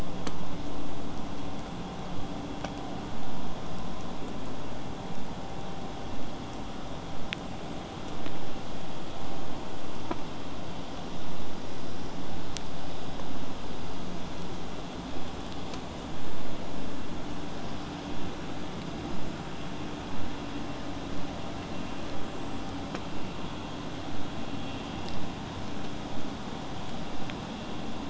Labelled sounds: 23.1	28.0	vessel noise, 0 to 8.0 kHz

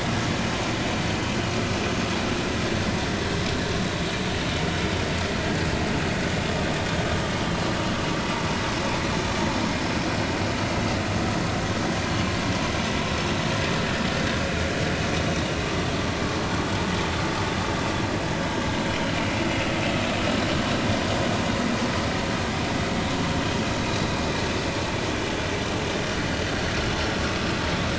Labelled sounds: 15.6	15.9	vessel noise, 1.1 to 1.2 kHz
18.9	19.1	vessel noise, 2.9 to 3.2 kHz

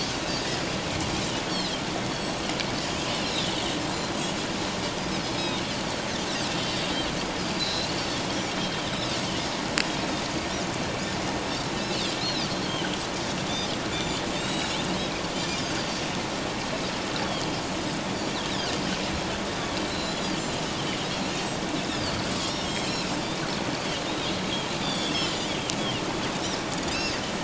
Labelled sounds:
3.1	3.5	Pacific white-sided dolphin, 2.7 to 4.2 kHz
5.2	5.6	Pacific white-sided dolphin, 4.8 to 5.2 kHz
7.4	7.9	Pacific white-sided dolphin, 3.8 to 5.2 kHz
8.6	8.9	Pacific white-sided dolphin, 3.0 to 3.3 kHz
11.7	12.5	Pacific white-sided dolphin, 2.6 to 4.5 kHz
13.9	14.8	Pacific white-sided dolphin, 2.6 to 7.9 kHz
15.3	16.0	Pacific white-sided dolphin, 4.5 to 7.3 kHz
17.2	17.5	Pacific white-sided dolphin, 4.2 to 4.6 kHz
18.1	18.8	Pacific white-sided dolphin, 4.7 to 5.8 kHz
19.5	20.3	Pacific white-sided dolphin, 3.2 to 7.2 kHz
21.9	23.1	Pacific white-sided dolphin, 2.4 to 5.6 kHz
24.1	25.2	Pacific white-sided dolphin, 3.2 to 7.0 kHz
26.3	27.1	Pacific white-sided dolphin, 3.5 to 5.5 kHz

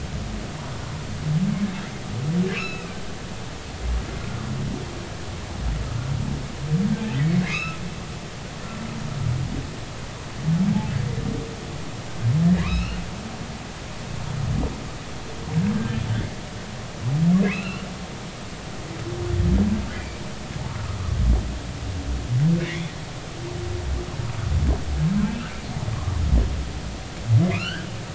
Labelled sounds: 2.5	3.0	humpback whale, 1.2 to 5.5 kHz
7.4	7.8	humpback whale, 1.2 to 5.2 kHz
12.6	13.0	humpback whale, 0.93 to 3.0 kHz
17.5	17.8	humpback whale, 2.4 to 4.2 kHz
20.0	20.2	humpback whale, 2.2 to 2.5 kHz
20.7	21.0	humpback whale, 0.99 to 1.5 kHz
22.6	22.9	humpback whale, 1.8 to 2.5 kHz
27.5	27.9	humpback whale, 1.2 to 4.6 kHz

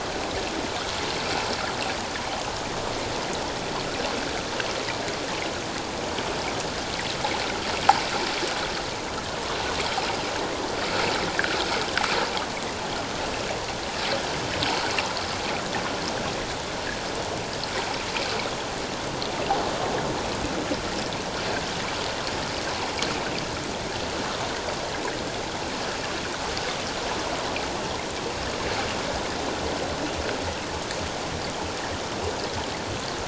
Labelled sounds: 11.3	11.6	water noise, 1.3 to 1.8 kHz

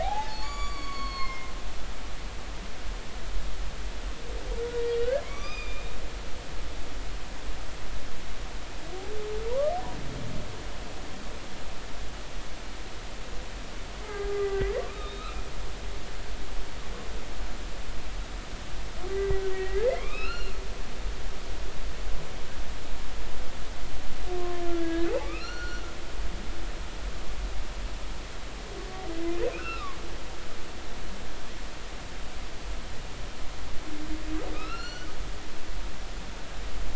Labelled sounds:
0.0	1.5	humpback whale, 0.80 to 6.9 kHz
5.0	5.9	humpback whale, 1.0 to 6.3 kHz
6.4	6.8	humpback whale, 3.5 to 3.8 kHz
9.5	9.7	humpback whale, 0.90 to 1.3 kHz
14.0	15.3	humpback whale, 0.80 to 4.1 kHz
19.1	20.5	humpback whale, 1.0 to 4.3 kHz
24.4	25.8	humpback whale, 1.0 to 5.8 kHz
29.5	30.0	humpback whale, 0.99 to 2.8 kHz
34.5	35.1	humpback whale, 1.2 to 6.0 kHz

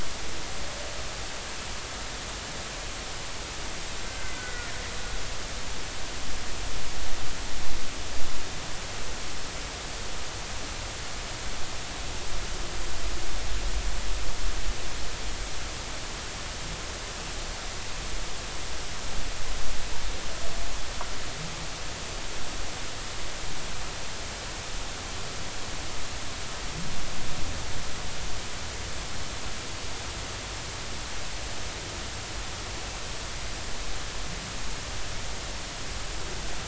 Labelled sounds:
4.1	4.8	humpback whale, 1.4 to 2.1 kHz

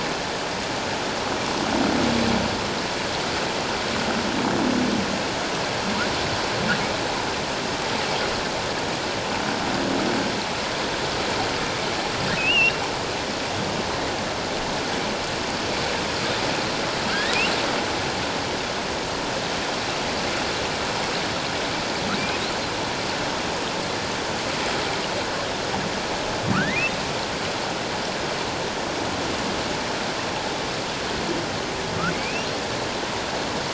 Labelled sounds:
12.4	12.8	humpback whale, 2.4 to 3.0 kHz
17.1	17.4	humpback whale, 1.5 to 2.0 kHz
26.5	26.9	humpback whale, 1.1 to 2.2 kHz
32.1	32.5	humpback whale, 2.1 to 3.0 kHz

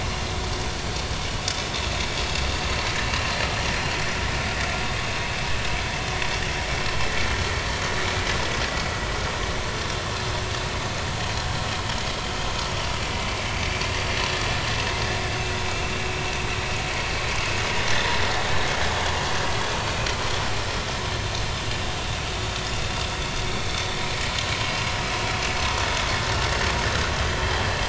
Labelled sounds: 0.1	0.3	vessel noise, 4.1 to 4.3 kHz
12.6	12.8	vessel noise, 5.4 to 5.7 kHz
23.4	23.7	vessel noise, 2.1 to 2.3 kHz

